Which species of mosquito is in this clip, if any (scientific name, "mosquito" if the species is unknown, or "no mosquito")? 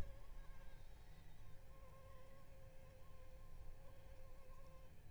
Anopheles arabiensis